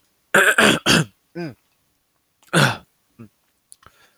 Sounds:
Throat clearing